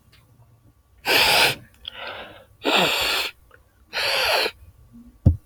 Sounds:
Sniff